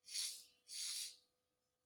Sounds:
Sniff